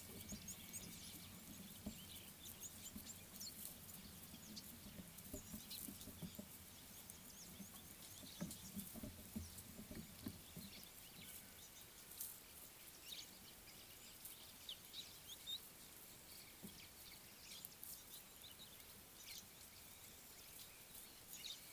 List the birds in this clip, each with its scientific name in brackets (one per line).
Scarlet-chested Sunbird (Chalcomitra senegalensis)
Red-billed Firefinch (Lagonosticta senegala)